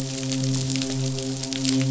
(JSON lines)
{"label": "biophony, midshipman", "recorder": "SoundTrap 500"}